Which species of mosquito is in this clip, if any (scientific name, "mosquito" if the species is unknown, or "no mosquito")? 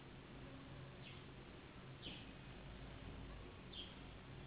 Anopheles gambiae s.s.